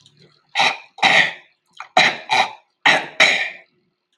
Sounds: Throat clearing